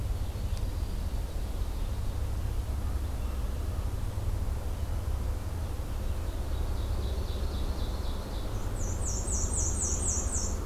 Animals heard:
Black-and-white Warbler (Mniotilta varia)
Ovenbird (Seiurus aurocapilla)
American Goldfinch (Spinus tristis)

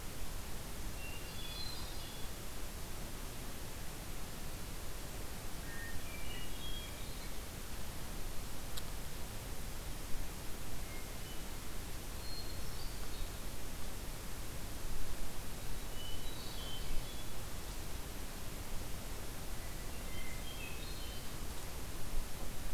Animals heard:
Hermit Thrush (Catharus guttatus)

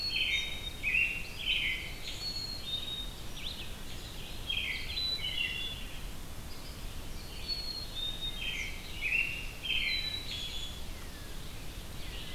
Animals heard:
American Robin (Turdus migratorius)
Red-eyed Vireo (Vireo olivaceus)
unidentified call
Black-capped Chickadee (Poecile atricapillus)

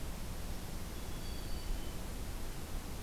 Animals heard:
Black-capped Chickadee (Poecile atricapillus)

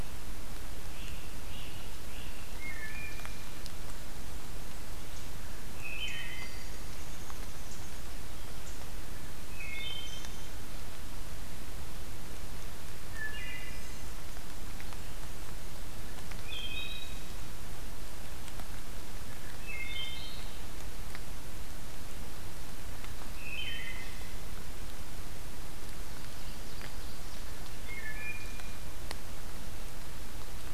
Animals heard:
Wood Thrush (Hylocichla mustelina)
Eastern Chipmunk (Tamias striatus)
Ovenbird (Seiurus aurocapilla)
Red-eyed Vireo (Vireo olivaceus)
Great Crested Flycatcher (Myiarchus crinitus)

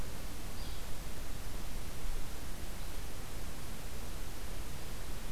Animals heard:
Yellow-bellied Flycatcher (Empidonax flaviventris)

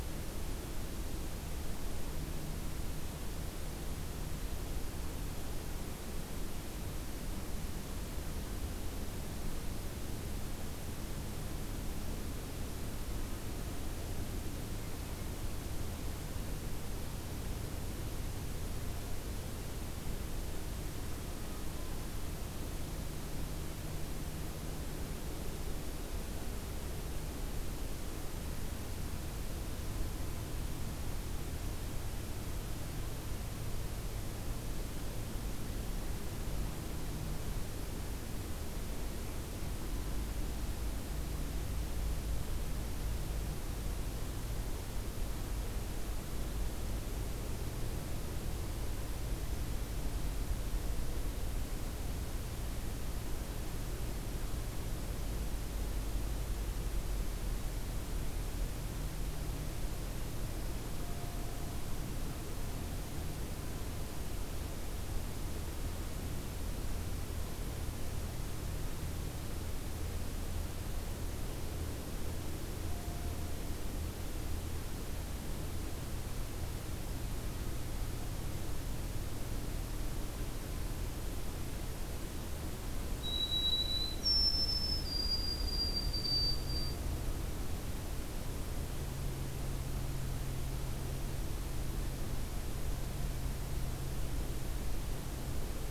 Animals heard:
White-throated Sparrow (Zonotrichia albicollis)

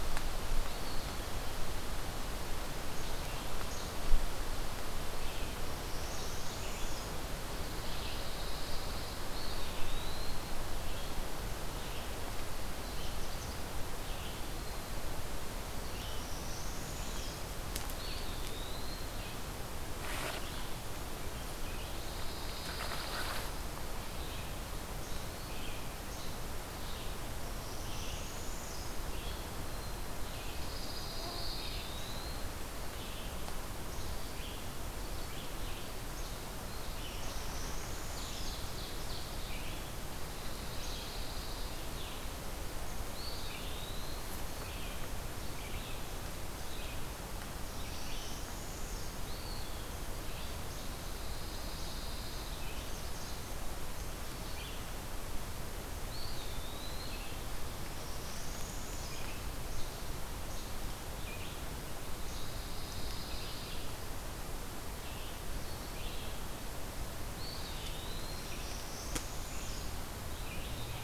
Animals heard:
Northern Parula (Setophaga americana)
Least Flycatcher (Empidonax minimus)
Red-eyed Vireo (Vireo olivaceus)
Eastern Wood-Pewee (Contopus virens)
Pine Warbler (Setophaga pinus)
Ovenbird (Seiurus aurocapilla)

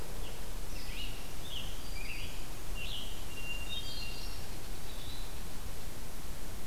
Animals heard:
Scarlet Tanager (Piranga olivacea)
Hermit Thrush (Catharus guttatus)
unknown mammal

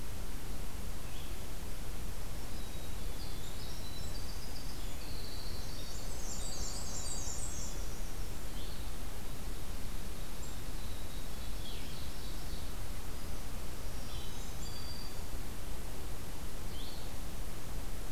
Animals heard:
Black-capped Chickadee (Poecile atricapillus)
Black-and-white Warbler (Mniotilta varia)
Ovenbird (Seiurus aurocapilla)
Black-throated Green Warbler (Setophaga virens)
Winter Wren (Troglodytes hiemalis)
Blue-headed Vireo (Vireo solitarius)

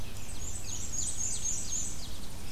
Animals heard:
Black-and-white Warbler (Mniotilta varia)
Ovenbird (Seiurus aurocapilla)
Red-eyed Vireo (Vireo olivaceus)

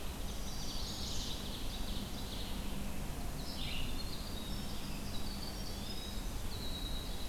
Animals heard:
Eastern Wood-Pewee (Contopus virens)
Chestnut-sided Warbler (Setophaga pensylvanica)
Ovenbird (Seiurus aurocapilla)
Winter Wren (Troglodytes hiemalis)
Red-eyed Vireo (Vireo olivaceus)

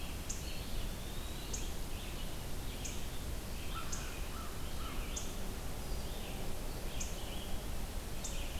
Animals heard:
American Crow (Corvus brachyrhynchos)
Red-eyed Vireo (Vireo olivaceus)
Eastern Wood-Pewee (Contopus virens)

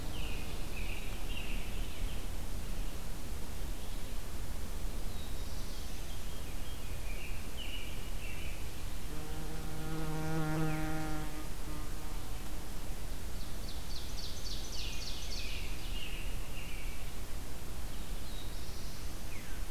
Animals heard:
Ovenbird (Seiurus aurocapilla)
Veery (Catharus fuscescens)
American Robin (Turdus migratorius)
Black-throated Blue Warbler (Setophaga caerulescens)

